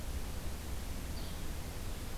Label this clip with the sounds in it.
Yellow-bellied Flycatcher